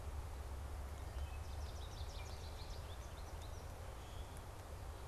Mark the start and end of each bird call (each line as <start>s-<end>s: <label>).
1.0s-3.8s: American Goldfinch (Spinus tristis)